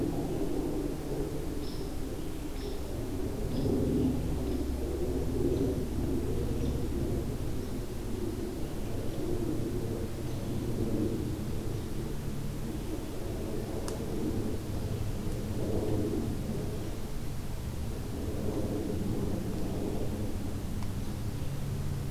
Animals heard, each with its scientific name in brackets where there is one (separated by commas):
American Robin (Turdus migratorius)